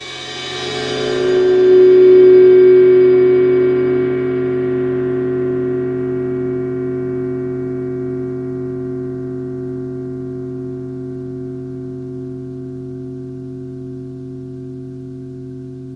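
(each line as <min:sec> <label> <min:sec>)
0:00.0 A rhythmic metallic vibration sound. 0:16.0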